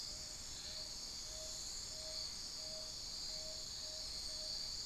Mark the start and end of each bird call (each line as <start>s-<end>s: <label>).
0.0s-4.8s: Tawny-bellied Screech-Owl (Megascops watsonii)